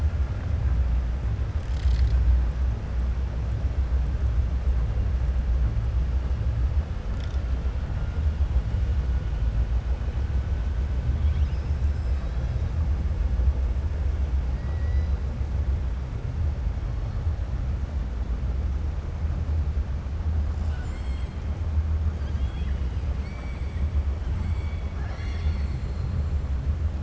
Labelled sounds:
22.1	23.8	killer whale, 1.3 to 5.4 kHz

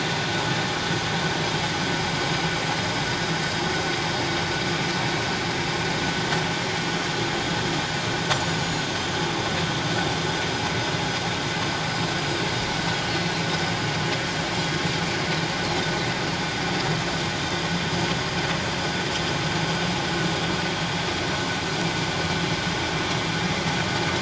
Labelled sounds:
8.5	8.8	Pacific white-sided dolphin, 6.7 to 7.0 kHz

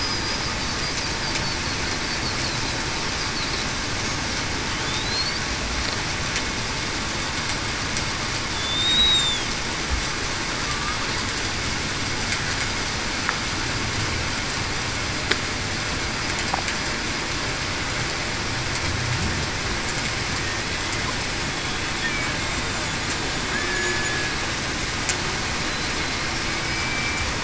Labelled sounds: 5.0	5.4	killer whale, Bigg's (transient), 4.0 to 4.8 kHz
8.5	9.5	killer whale, Bigg's (transient), 3.2 to 3.9 kHz
23.5	24.4	killer whale, Bigg's (transient), 1.6 to 1.8 kHz
26.6	27.2	killer whale, Bigg's (transient), 2.2 to 2.4 kHz

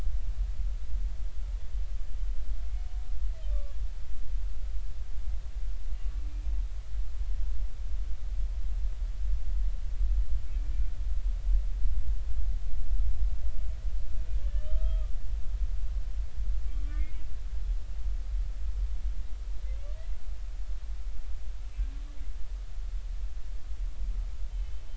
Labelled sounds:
3.5	3.8	humpback whale, 1.1 to 1.2 kHz
10.5	10.7	humpback whale, 2.2 to 2.4 kHz
14.4	15.1	humpback whale, 1.1 to 3.2 kHz
16.7	17.2	humpback whale, 1.1 to 2.3 kHz
24.5	24.8	humpback whale, 2.9 to 3.2 kHz

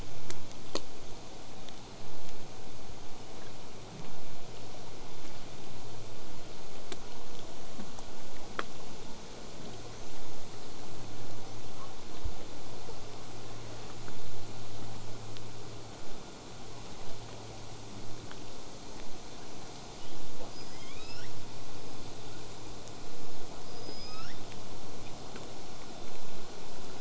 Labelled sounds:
0.0	5.0	vessel noise, 0 to 8.0 kHz
20.0	20.3	killer whale, southern resident, 2.7 to 3.8 kHz
20.5	21.3	killer whale, southern resident, L pod, call S19, 0.81 to 8.0 kHz
23.6	24.4	killer whale, southern resident, L pod, call S19, 1.1 to 8.0 kHz

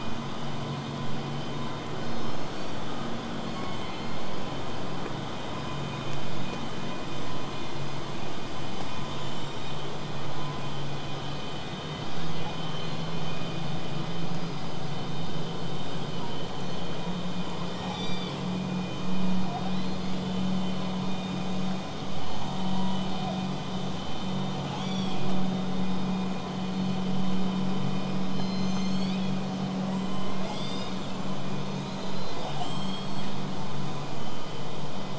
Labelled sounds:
2.0	3.0	killer whale, southern resident, call S01, 2.3 to 8.0 kHz
3.4	4.3	killer whale, southern resident, 0.89 to 4.5 kHz
9.2	9.8	killer whale, southern resident, 5.1 to 8.0 kHz
15.8	16.4	killer whale, southern resident, 5.6 to 6.6 kHz
16.6	16.8	killer whale, southern resident, whistle, 5.8 to 6.2 kHz
17.7	18.4	killer whale, southern resident, 2.1 to 8.0 kHz
19.5	20.2	killer whale, southern resident, 2.9 to 4.6 kHz
28.4	29.6	killer whale, southern resident, call S01, 1.9 to 8.0 kHz
29.8	32.4	killer whale, southern resident, 2.7 to 8.0 kHz
32.4	33.5	killer whale, southern resident, J pod, call S44, 2.6 to 8.0 kHz

